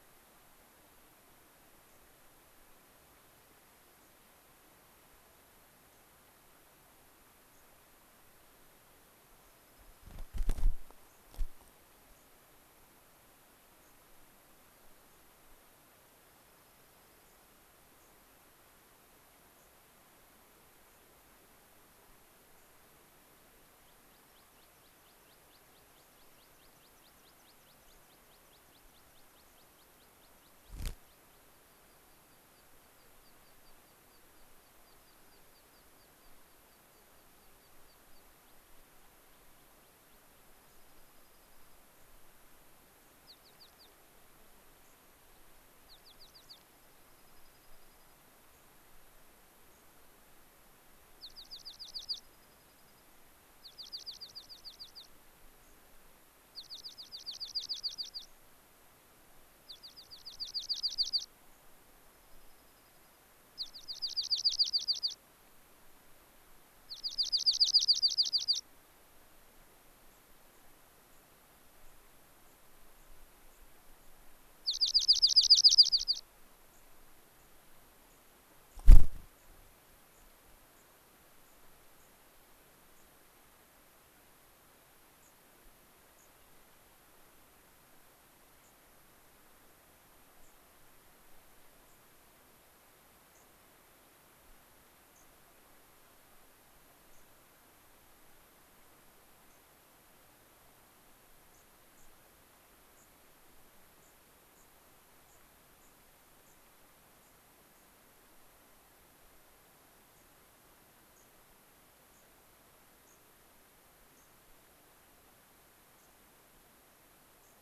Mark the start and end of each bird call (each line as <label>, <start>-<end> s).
unidentified bird, 1.8-2.0 s
unidentified bird, 3.9-4.2 s
unidentified bird, 5.8-6.0 s
unidentified bird, 7.4-7.6 s
Dark-eyed Junco (Junco hyemalis), 9.3-10.3 s
unidentified bird, 11.0-11.2 s
unidentified bird, 11.5-11.7 s
unidentified bird, 12.0-12.3 s
unidentified bird, 13.8-13.9 s
unidentified bird, 15.0-15.2 s
Dark-eyed Junco (Junco hyemalis), 16.2-17.5 s
unidentified bird, 17.2-17.4 s
unidentified bird, 17.9-18.1 s
unidentified bird, 19.4-19.7 s
unidentified bird, 20.8-21.1 s
unidentified bird, 22.4-22.7 s
American Pipit (Anthus rubescens), 23.7-30.7 s
unidentified bird, 25.9-26.2 s
unidentified bird, 27.8-28.0 s
unidentified bird, 29.3-29.6 s
American Pipit (Anthus rubescens), 31.5-40.4 s
Dark-eyed Junco (Junco hyemalis), 40.4-41.8 s
unidentified bird, 40.6-40.8 s
Dark-eyed Junco (Junco hyemalis), 43.2-43.9 s
unidentified bird, 44.7-45.0 s
Dark-eyed Junco (Junco hyemalis), 45.7-48.2 s
unidentified bird, 46.3-46.6 s
unidentified bird, 48.5-48.7 s
unidentified bird, 49.6-49.9 s
Dark-eyed Junco (Junco hyemalis), 51.1-53.0 s
Dark-eyed Junco (Junco hyemalis), 53.6-55.1 s
unidentified bird, 55.5-55.8 s
Dark-eyed Junco (Junco hyemalis), 56.4-58.2 s
unidentified bird, 58.2-58.4 s
Dark-eyed Junco (Junco hyemalis), 59.6-61.2 s
unidentified bird, 61.4-61.6 s
Dark-eyed Junco (Junco hyemalis), 61.9-63.2 s
Dark-eyed Junco (Junco hyemalis), 63.5-65.2 s
Dark-eyed Junco (Junco hyemalis), 66.7-68.6 s
unidentified bird, 70.0-70.6 s
unidentified bird, 71.0-71.3 s
unidentified bird, 71.7-72.0 s
unidentified bird, 72.4-72.6 s
unidentified bird, 72.9-74.1 s
Dark-eyed Junco (Junco hyemalis), 74.6-76.3 s
unidentified bird, 76.6-76.8 s
unidentified bird, 77.2-77.5 s
unidentified bird, 78.0-78.3 s
unidentified bird, 79.3-79.5 s
unidentified bird, 80.0-80.3 s
unidentified bird, 80.6-80.9 s
unidentified bird, 81.4-81.6 s
unidentified bird, 81.9-82.1 s
unidentified bird, 82.9-83.1 s
unidentified bird, 85.1-85.3 s
unidentified bird, 86.1-86.3 s
unidentified bird, 88.5-88.7 s
unidentified bird, 90.3-90.6 s
unidentified bird, 91.8-92.0 s
unidentified bird, 93.2-93.5 s
unidentified bird, 95.1-95.3 s
unidentified bird, 97.0-97.2 s
unidentified bird, 99.4-99.6 s
unidentified bird, 101.4-102.1 s
unidentified bird, 102.9-103.1 s
unidentified bird, 103.9-107.9 s
unidentified bird, 110.1-110.3 s
unidentified bird, 111.0-111.3 s
unidentified bird, 112.0-112.3 s
unidentified bird, 113.0-113.2 s
unidentified bird, 114.0-114.3 s
unidentified bird, 115.9-116.1 s
unidentified bird, 117.3-117.5 s